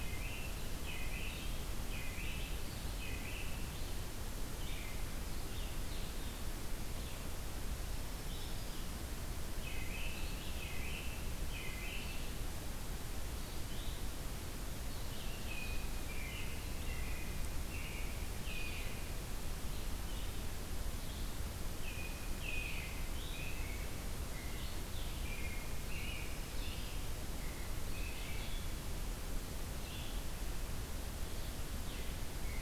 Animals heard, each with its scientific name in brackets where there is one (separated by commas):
Blue-headed Vireo (Vireo solitarius), Black-throated Green Warbler (Setophaga virens), American Robin (Turdus migratorius)